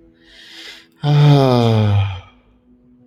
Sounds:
Sigh